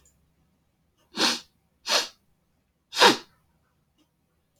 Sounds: Sniff